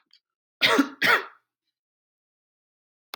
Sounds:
Cough